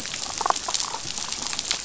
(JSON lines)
{"label": "biophony, damselfish", "recorder": "SoundTrap 500"}